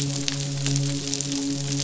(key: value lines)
label: biophony, midshipman
recorder: SoundTrap 500